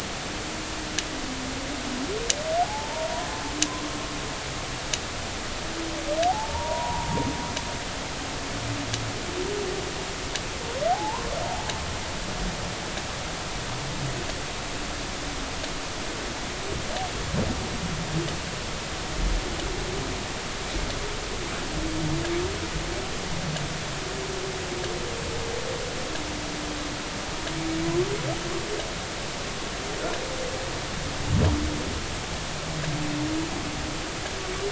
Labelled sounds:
2.6	3.3	humpback whale, 0.80 to 1.1 kHz
6.3	7.1	humpback whale, 0.80 to 1.1 kHz
10.9	11.3	humpback whale, 0.80 to 1.1 kHz

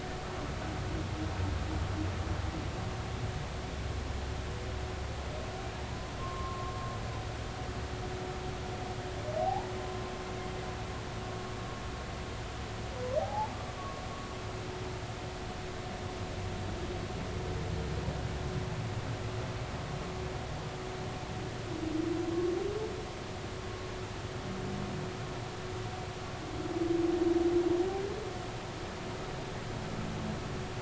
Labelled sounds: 6.2	6.7	humpback whale, 0.99 to 1.2 kHz
9.4	10.0	humpback whale, 0.80 to 1.1 kHz
13.2	13.5	humpback whale, 0.80 to 0.96 kHz

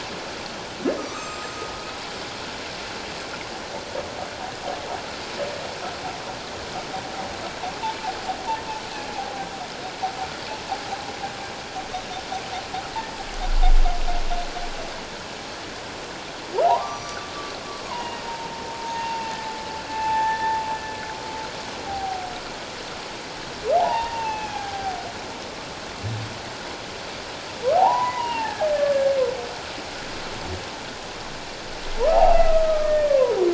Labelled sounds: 1.1	1.6	humpback whale, 2.4 to 7.7 kHz
16.6	17.2	humpback whale, 0.78 to 5.9 kHz
17.9	19.4	humpback whale, 0.84 to 2.9 kHz
19.9	20.6	humpback whale, 0.81 to 2.7 kHz
21.9	22.3	humpback whale, 0.78 to 0.84 kHz
23.8	25.0	humpback whale, 0.78 to 6.2 kHz
27.7	29.1	humpback whale, 0.78 to 2.9 kHz
32.1	33.4	humpback whale, 0.78 to 2.8 kHz

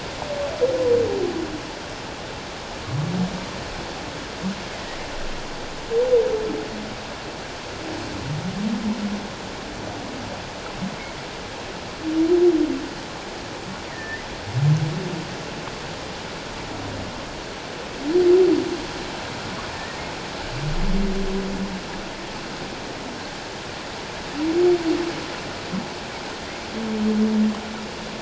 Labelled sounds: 4.7	5.0	humpback whale, 1.8 to 2.2 kHz
13.9	14.2	humpback whale, 1.7 to 1.9 kHz
19.7	20.0	humpback whale, 1.7 to 1.9 kHz

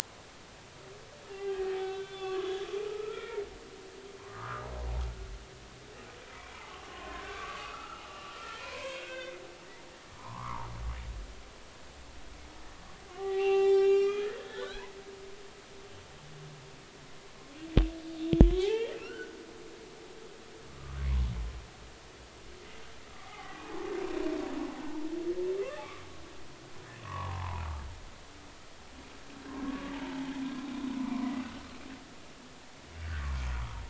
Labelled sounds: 1.3	3.4	humpback whale, 0.80 to 3.6 kHz
4.2	4.7	humpback whale, 0.90 to 1.5 kHz
6.4	9.4	humpback whale, 0.93 to 3.7 kHz
10.2	10.7	humpback whale, 0.80 to 1.3 kHz
13.1	14.9	humpback whale, 0.80 to 5.6 kHz
18.6	19.2	humpback whale, 0.80 to 3.3 kHz
20.0	21.0	humpback whale, 1.1 to 1.6 kHz
23.1	23.9	humpback whale, 0.80 to 1.3 kHz
28.0	28.6	humpback whale, 0.80 to 1.2 kHz
29.6	30.3	humpback whale, 0.80 to 1.2 kHz
31.0	31.3	humpback whale, 0.96 to 1.2 kHz
33.0	33.3	humpback whale, 1.4 to 2.0 kHz

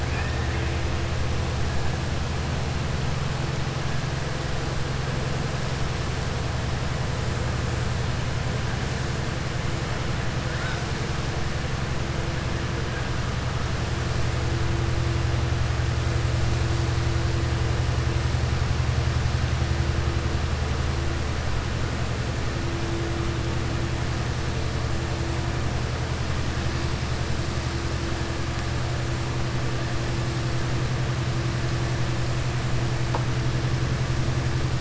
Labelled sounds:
0.0	0.7	killer whale, southern resident, 0.87 to 2.8 kHz

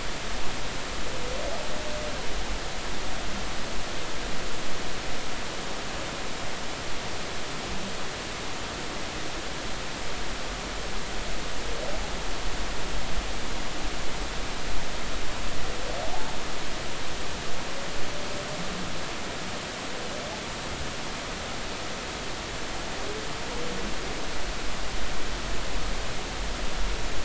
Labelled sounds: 16.0	16.3	humpback whale, 0.80 to 0.96 kHz

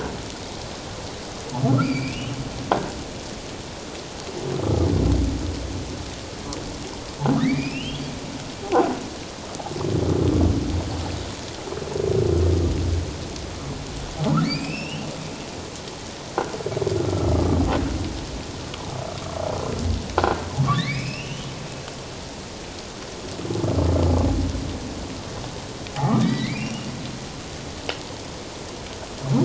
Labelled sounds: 1.8	2.4	humpback whale, 2.2 to 4.9 kHz
4.6	4.9	humpback whale, 1.2 to 1.3 kHz
7.4	8.0	humpback whale, 1.7 to 5.5 kHz
8.6	8.9	croaking sound likely from a nearby submerged object, 0.78 to 1.1 kHz
14.4	15.1	humpback whale, 2.1 to 5.2 kHz
17.1	17.3	humpback whale, 1.3 to 1.4 kHz
20.6	21.5	humpback whale, 1.0 to 5.3 kHz
26.0	26.9	humpback whale, 1.0 to 5.7 kHz

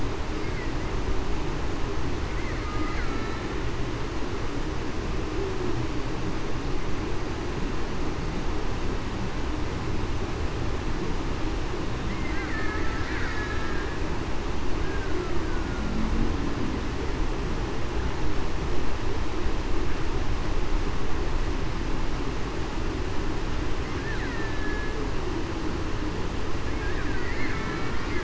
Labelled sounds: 2.6	3.4	killer whale, Bigg's (transient), 1.2 to 1.6 kHz
13.3	13.8	killer whale, Bigg's (transient), 1.6 to 1.8 kHz
24.3	24.9	killer whale, Bigg's (transient), 1.7 to 2.0 kHz
27.5	28.0	killer whale, Bigg's (transient), 1.3 to 2.3 kHz

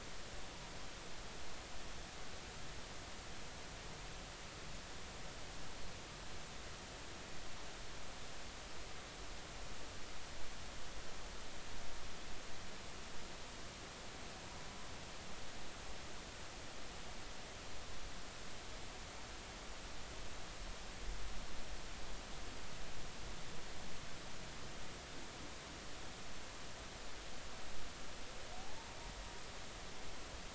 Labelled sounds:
28.6	29.0	humpback whale, 0.80 to 0.96 kHz

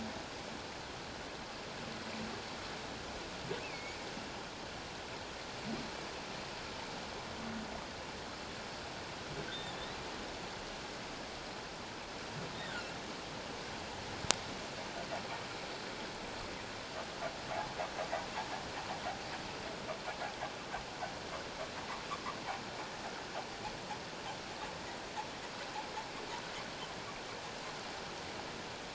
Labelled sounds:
3.6	4.1	humpback whale, 2.1 to 2.8 kHz
9.5	10.0	humpback whale, 1.7 to 4.1 kHz

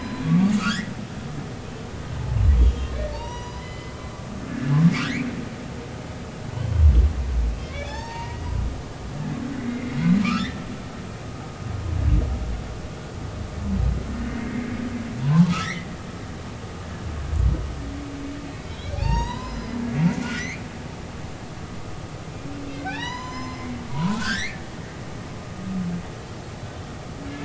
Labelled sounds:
0.0	0.9	humpback whale, 1.1 to 5.3 kHz
3.1	4.8	humpback whale, 0.86 to 7.1 kHz
6.6	6.8	humpback whale, 2.9 to 3.3 kHz
7.6	8.5	humpback whale, 0.80 to 6.5 kHz
9.7	10.6	humpback whale, 1.0 to 2.2 kHz
14.3	14.5	humpback whale, 2.0 to 2.2 kHz
15.2	15.9	humpback whale, 0.83 to 2.3 kHz
18.9	20.6	humpback whale, 0.80 to 6.8 kHz
22.8	24.7	humpback whale, 0.80 to 7.2 kHz

